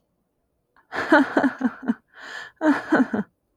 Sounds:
Laughter